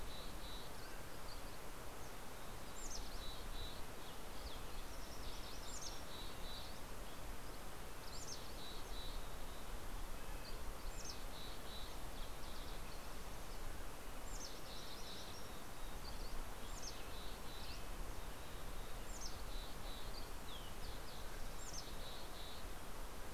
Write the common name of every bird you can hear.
Mountain Chickadee, Mountain Quail, Dusky Flycatcher, Red-breasted Nuthatch